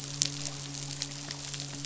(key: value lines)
label: biophony, midshipman
recorder: SoundTrap 500